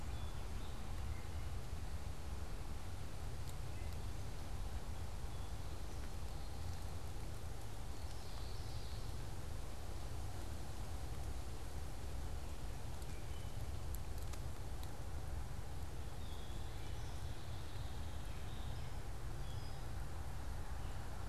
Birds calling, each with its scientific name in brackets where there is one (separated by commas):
Gray Catbird (Dumetella carolinensis), unidentified bird, Common Yellowthroat (Geothlypis trichas)